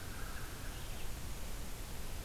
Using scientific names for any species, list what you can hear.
Corvus brachyrhynchos, Vireo olivaceus